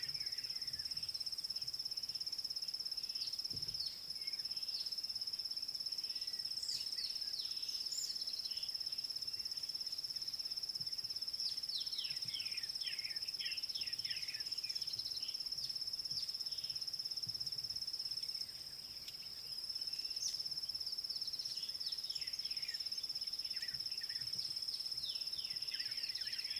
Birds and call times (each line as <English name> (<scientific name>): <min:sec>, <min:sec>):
White Helmetshrike (Prionops plumatus): 0:12.9, 0:25.5
Rattling Cisticola (Cisticola chiniana): 0:21.3